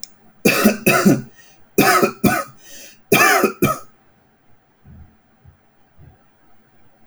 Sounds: Cough